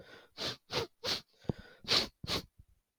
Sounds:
Sniff